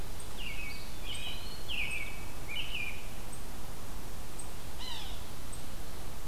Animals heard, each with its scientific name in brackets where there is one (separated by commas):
Eastern Wood-Pewee (Contopus virens), American Robin (Turdus migratorius), Yellow-bellied Sapsucker (Sphyrapicus varius)